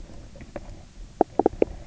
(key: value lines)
label: biophony, knock croak
recorder: SoundTrap 300